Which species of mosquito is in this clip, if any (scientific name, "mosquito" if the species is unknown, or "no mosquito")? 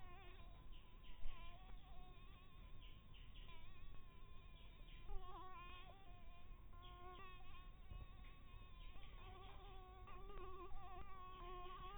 Anopheles barbirostris